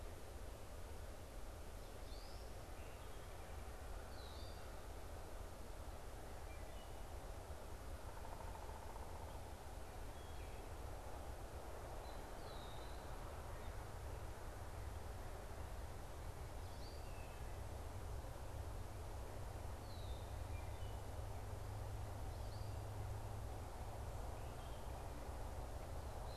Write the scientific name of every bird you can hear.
unidentified bird, Hylocichla mustelina, Dryocopus pileatus, Agelaius phoeniceus